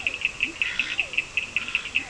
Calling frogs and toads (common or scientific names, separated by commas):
Leptodactylus latrans, Physalaemus cuvieri, Cochran's lime tree frog, Scinax perereca